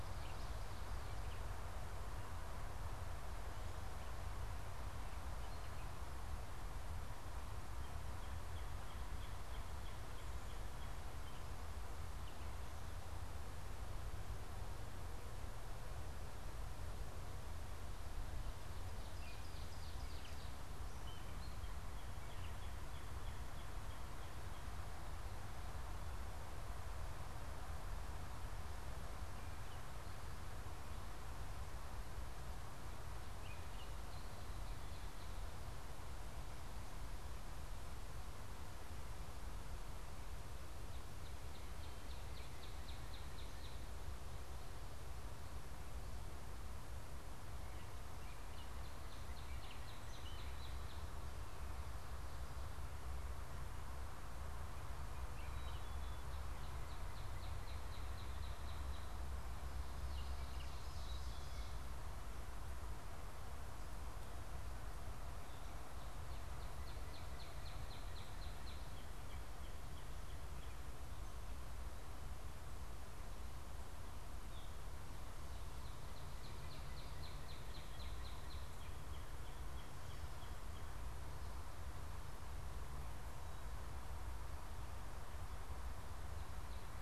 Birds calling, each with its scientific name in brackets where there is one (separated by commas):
Northern Cardinal (Cardinalis cardinalis), Ovenbird (Seiurus aurocapilla), Gray Catbird (Dumetella carolinensis)